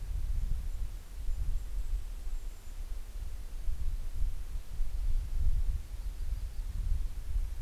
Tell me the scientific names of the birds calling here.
Regulus satrapa, Setophaga coronata